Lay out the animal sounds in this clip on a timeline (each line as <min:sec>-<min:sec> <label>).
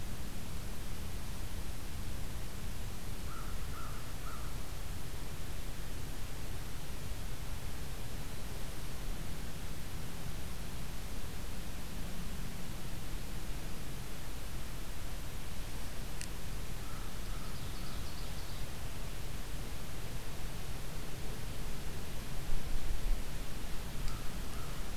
0:02.9-0:04.8 American Crow (Corvus brachyrhynchos)
0:16.9-0:18.9 Ovenbird (Seiurus aurocapilla)